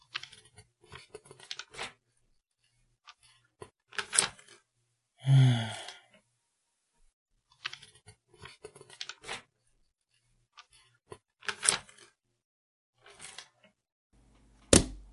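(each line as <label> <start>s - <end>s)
Pages of a book being flipped in succession. 0.0s - 2.0s
A single page of a book is being flipped. 3.8s - 4.5s
A man sighs in disappointment. 5.3s - 5.9s
Book pages flipping quickly in succession. 7.6s - 9.6s
Book pages flipping quickly in succession. 11.1s - 12.1s
Pages of a book are being flipped quickly. 13.2s - 13.5s
A book is slammed closed angrily. 14.7s - 15.1s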